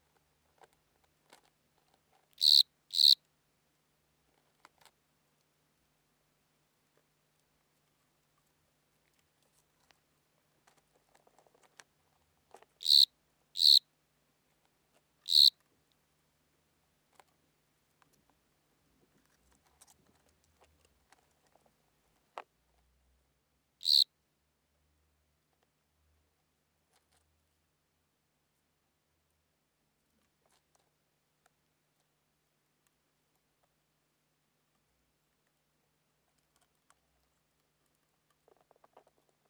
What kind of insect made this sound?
orthopteran